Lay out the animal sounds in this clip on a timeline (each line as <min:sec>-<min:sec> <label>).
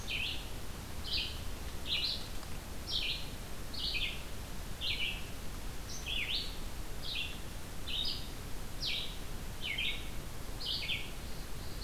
0:00.0-0:11.8 Red-eyed Vireo (Vireo olivaceus)
0:10.9-0:11.8 Black-throated Blue Warbler (Setophaga caerulescens)